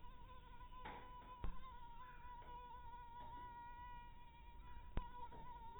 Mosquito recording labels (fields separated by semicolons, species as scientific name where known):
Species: mosquito; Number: one; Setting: cup